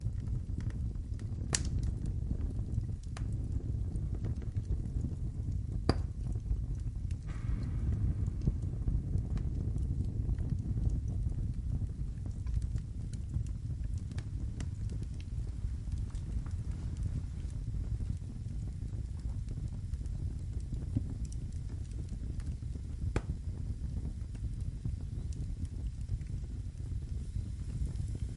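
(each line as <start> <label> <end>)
0.0 Fire crackling gradually increases. 28.4
1.4 Fire crackling nearby. 1.7
5.8 A crackling fire. 6.0
23.0 A crackling fire gradually increases in intensity nearby. 23.4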